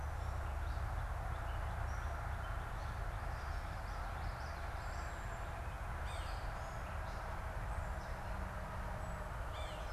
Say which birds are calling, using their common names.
Gray Catbird, Common Yellowthroat, Yellow-bellied Sapsucker